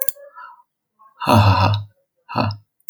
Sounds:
Laughter